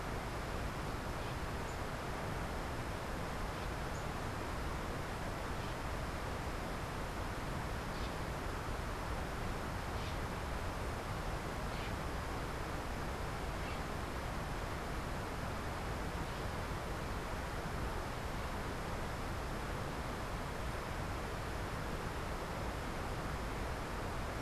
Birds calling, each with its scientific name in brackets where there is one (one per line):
Bronze-winged Parrot (Pionus chalcopterus)